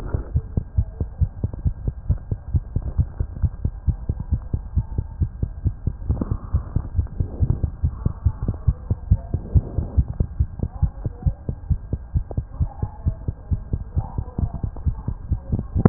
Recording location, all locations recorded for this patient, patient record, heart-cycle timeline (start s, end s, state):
aortic valve (AV)
aortic valve (AV)+pulmonary valve (PV)+tricuspid valve (TV)+mitral valve (MV)
#Age: Child
#Sex: Male
#Height: 106.0 cm
#Weight: 16.7 kg
#Pregnancy status: False
#Murmur: Absent
#Murmur locations: nan
#Most audible location: nan
#Systolic murmur timing: nan
#Systolic murmur shape: nan
#Systolic murmur grading: nan
#Systolic murmur pitch: nan
#Systolic murmur quality: nan
#Diastolic murmur timing: nan
#Diastolic murmur shape: nan
#Diastolic murmur grading: nan
#Diastolic murmur pitch: nan
#Diastolic murmur quality: nan
#Outcome: Normal
#Campaign: 2015 screening campaign
0.00	0.74	unannotated
0.74	0.86	S1
0.86	1.00	systole
1.00	1.08	S2
1.08	1.20	diastole
1.20	1.30	S1
1.30	1.42	systole
1.42	1.50	S2
1.50	1.64	diastole
1.64	1.74	S1
1.74	1.85	systole
1.85	1.94	S2
1.94	2.08	diastole
2.08	2.18	S1
2.18	2.30	systole
2.30	2.38	S2
2.38	2.52	diastole
2.52	2.62	S1
2.62	2.74	systole
2.74	2.81	S2
2.81	2.97	diastole
2.97	3.06	S1
3.06	3.18	systole
3.18	3.26	S2
3.26	3.40	diastole
3.40	3.52	S1
3.52	3.63	systole
3.63	3.72	S2
3.72	3.86	diastole
3.86	3.96	S1
3.96	4.06	systole
4.06	4.16	S2
4.16	4.30	diastole
4.30	4.42	S1
4.42	4.52	systole
4.52	4.62	S2
4.62	4.73	diastole
4.73	4.86	S1
4.86	4.96	systole
4.96	5.06	S2
5.06	5.19	diastole
5.19	5.30	S1
5.30	5.41	systole
5.41	5.50	S2
5.50	5.63	diastole
5.63	5.74	S1
5.74	5.85	systole
5.85	5.92	S2
5.92	6.08	diastole
6.08	6.16	S1
6.16	6.29	systole
6.29	6.40	S2
6.40	6.51	diastole
6.51	6.64	S1
6.64	6.74	systole
6.74	6.84	S2
6.84	6.96	diastole
6.96	7.08	S1
7.08	7.18	systole
7.18	7.28	S2
7.28	7.38	diastole
7.38	7.49	S1
7.49	7.61	systole
7.61	7.69	S2
7.69	7.81	diastole
7.81	7.91	S1
7.91	8.04	systole
8.04	8.11	S2
8.11	8.24	diastole
8.24	8.33	S1
8.33	8.45	systole
8.45	8.54	S2
8.54	8.64	diastole
8.64	8.74	S1
8.74	8.88	systole
8.88	8.96	S2
8.96	9.07	diastole
9.07	9.20	S1
9.20	9.31	systole
9.31	9.42	S2
9.42	9.53	diastole
9.53	9.64	S1
9.64	9.76	systole
9.76	9.85	S2
9.85	9.95	diastole
9.95	10.05	S1
10.05	15.89	unannotated